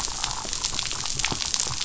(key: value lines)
label: biophony, damselfish
recorder: SoundTrap 500